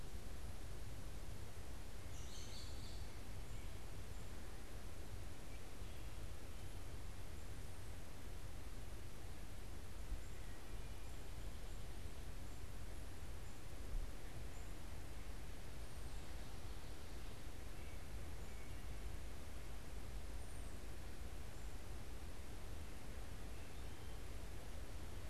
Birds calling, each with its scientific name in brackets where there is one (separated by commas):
unidentified bird, Wood Thrush (Hylocichla mustelina), American Robin (Turdus migratorius)